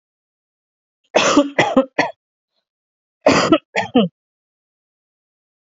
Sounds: Cough